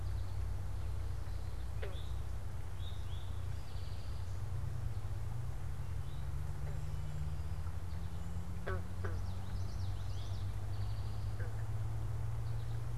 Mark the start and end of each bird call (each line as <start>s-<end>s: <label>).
0.0s-4.3s: Eastern Towhee (Pipilo erythrophthalmus)
8.8s-10.6s: Common Yellowthroat (Geothlypis trichas)
9.9s-13.0s: Eastern Towhee (Pipilo erythrophthalmus)